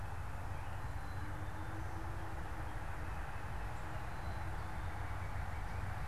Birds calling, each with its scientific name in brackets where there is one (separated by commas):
Black-capped Chickadee (Poecile atricapillus)